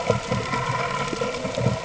{"label": "ambient", "recorder": "HydroMoth"}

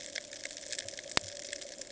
{"label": "ambient", "recorder": "HydroMoth"}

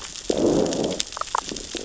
{"label": "biophony, growl", "recorder": "SoundTrap 600 or HydroMoth"}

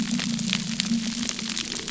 {"label": "anthrophony, boat engine", "recorder": "SoundTrap 300"}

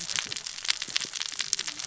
{"label": "biophony, cascading saw", "recorder": "SoundTrap 600 or HydroMoth"}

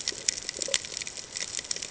{"label": "ambient", "recorder": "HydroMoth"}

